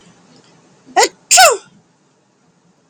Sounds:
Sneeze